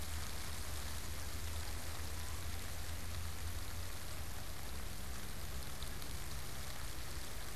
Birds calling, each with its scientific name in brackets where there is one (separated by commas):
unidentified bird